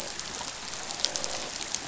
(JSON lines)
{"label": "biophony, croak", "recorder": "SoundTrap 500"}